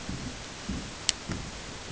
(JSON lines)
{"label": "ambient", "recorder": "HydroMoth"}